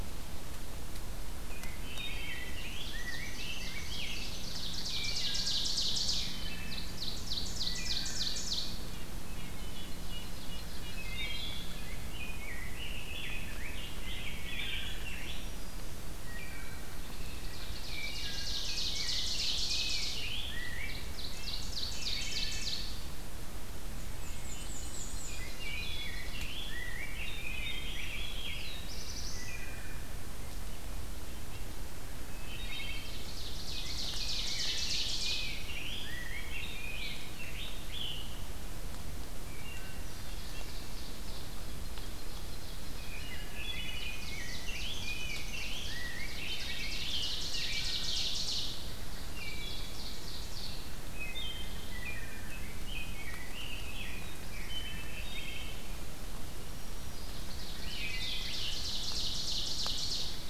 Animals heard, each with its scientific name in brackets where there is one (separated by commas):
Scarlet Tanager (Piranga olivacea), Red-breasted Nuthatch (Sitta canadensis), Black-throated Blue Warbler (Setophaga caerulescens), Black-and-white Warbler (Mniotilta varia), Wood Thrush (Hylocichla mustelina), Rose-breasted Grosbeak (Pheucticus ludovicianus), Ovenbird (Seiurus aurocapilla), Black-throated Green Warbler (Setophaga virens)